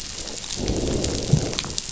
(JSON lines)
{"label": "biophony, growl", "recorder": "SoundTrap 500"}